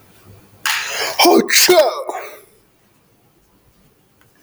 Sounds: Sneeze